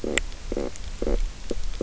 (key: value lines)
label: biophony, stridulation
recorder: SoundTrap 300